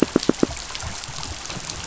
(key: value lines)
label: biophony, pulse
recorder: SoundTrap 500